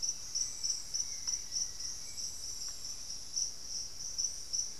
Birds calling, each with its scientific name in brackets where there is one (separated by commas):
Cinnamon-rumped Foliage-gleaner (Philydor pyrrhodes)